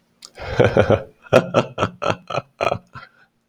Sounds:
Laughter